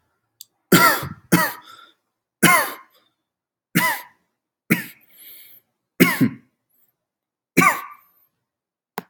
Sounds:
Cough